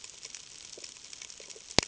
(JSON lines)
{"label": "ambient", "recorder": "HydroMoth"}